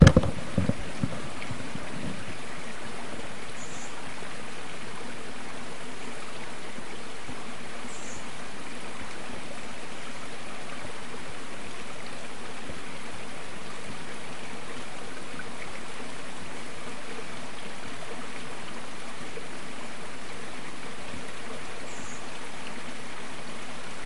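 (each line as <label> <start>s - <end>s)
Rustling sounds. 0.0s - 1.9s
Water flowing in a river. 0.0s - 24.1s
An insect chirps. 3.8s - 4.2s
An insect chirps. 8.0s - 8.4s
An insect chirps. 22.0s - 22.6s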